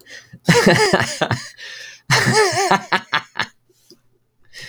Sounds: Laughter